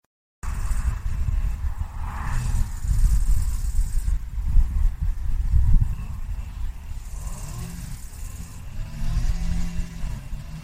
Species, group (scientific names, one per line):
Chorthippus biguttulus
Orthoptera